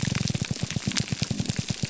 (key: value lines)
label: biophony
recorder: SoundTrap 300